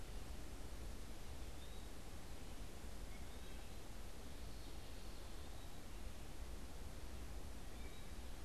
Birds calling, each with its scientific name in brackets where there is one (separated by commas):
Wood Thrush (Hylocichla mustelina), Eastern Wood-Pewee (Contopus virens)